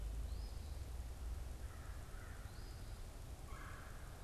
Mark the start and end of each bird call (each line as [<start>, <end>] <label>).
[0.00, 4.23] Eastern Phoebe (Sayornis phoebe)
[1.40, 2.70] American Crow (Corvus brachyrhynchos)
[3.30, 4.23] Red-bellied Woodpecker (Melanerpes carolinus)